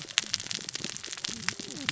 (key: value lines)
label: biophony, cascading saw
recorder: SoundTrap 600 or HydroMoth